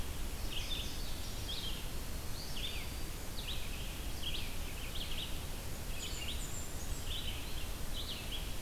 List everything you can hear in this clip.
Indigo Bunting, Red-eyed Vireo, Black-throated Green Warbler, Blackburnian Warbler